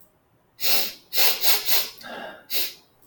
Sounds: Sniff